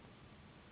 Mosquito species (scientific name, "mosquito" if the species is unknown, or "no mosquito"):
Anopheles gambiae s.s.